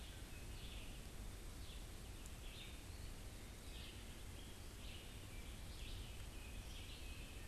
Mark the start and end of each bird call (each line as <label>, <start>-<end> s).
Red-eyed Vireo (Vireo olivaceus), 0.0-7.5 s
Eastern Wood-Pewee (Contopus virens), 2.8-3.9 s